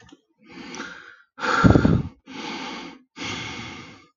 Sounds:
Sigh